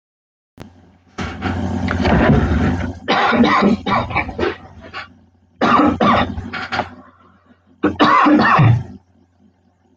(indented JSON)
{
  "expert_labels": [
    {
      "quality": "poor",
      "cough_type": "dry",
      "dyspnea": false,
      "wheezing": false,
      "stridor": false,
      "choking": false,
      "congestion": false,
      "nothing": true,
      "diagnosis": "COVID-19",
      "severity": "mild"
    }
  ],
  "age": 21,
  "gender": "male",
  "respiratory_condition": false,
  "fever_muscle_pain": false,
  "status": "symptomatic"
}